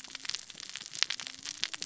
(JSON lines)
{"label": "biophony, cascading saw", "recorder": "SoundTrap 600 or HydroMoth"}